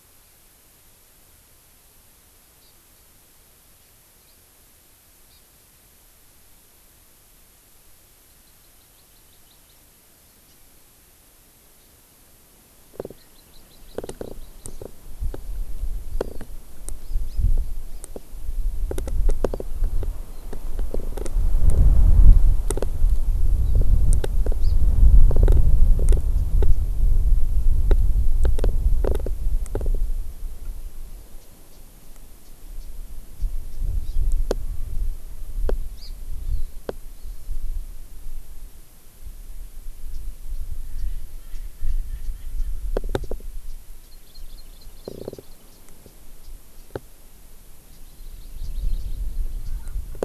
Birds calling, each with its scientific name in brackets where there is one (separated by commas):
Hawaii Amakihi (Chlorodrepanis virens), Japanese Bush Warbler (Horornis diphone)